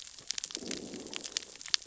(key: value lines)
label: biophony, growl
recorder: SoundTrap 600 or HydroMoth